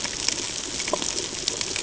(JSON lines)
{"label": "ambient", "recorder": "HydroMoth"}